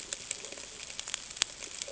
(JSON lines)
{"label": "ambient", "recorder": "HydroMoth"}